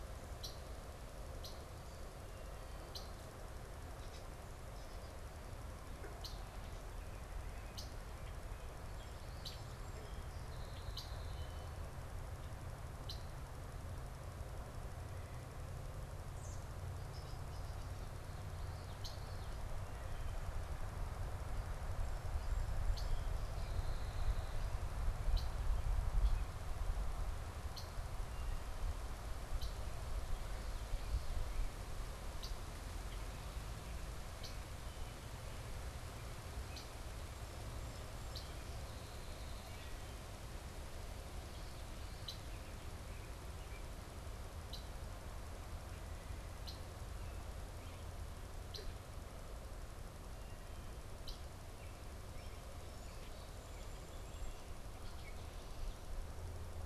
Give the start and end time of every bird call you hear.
[0.00, 13.36] Red-winged Blackbird (Agelaius phoeniceus)
[16.26, 16.66] American Robin (Turdus migratorius)
[18.66, 51.66] Red-winged Blackbird (Agelaius phoeniceus)
[18.76, 19.66] Common Yellowthroat (Geothlypis trichas)
[22.96, 24.86] Song Sparrow (Melospiza melodia)
[30.06, 31.86] Common Yellowthroat (Geothlypis trichas)
[37.76, 39.86] Song Sparrow (Melospiza melodia)
[52.06, 54.46] Song Sparrow (Melospiza melodia)

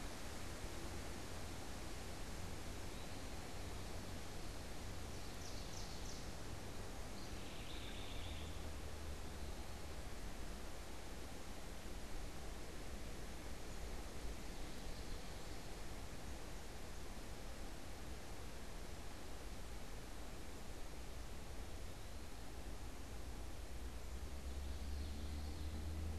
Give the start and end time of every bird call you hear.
[4.76, 6.36] Ovenbird (Seiurus aurocapilla)
[6.86, 8.66] House Wren (Troglodytes aedon)
[24.16, 25.86] Common Yellowthroat (Geothlypis trichas)

